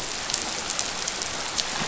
{"label": "anthrophony, boat engine", "recorder": "SoundTrap 500"}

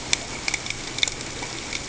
{"label": "ambient", "recorder": "HydroMoth"}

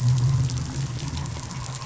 {"label": "anthrophony, boat engine", "recorder": "SoundTrap 500"}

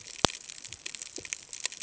{"label": "ambient", "recorder": "HydroMoth"}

